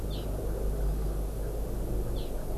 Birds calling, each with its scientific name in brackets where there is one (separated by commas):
Hawaii Amakihi (Chlorodrepanis virens)